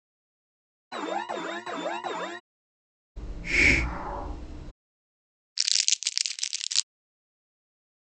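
At 0.91 seconds, a quiet alarm is heard. Then at 3.16 seconds, hissing is audible. After that, at 5.55 seconds, you can hear crumpling.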